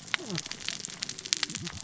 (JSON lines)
{"label": "biophony, cascading saw", "recorder": "SoundTrap 600 or HydroMoth"}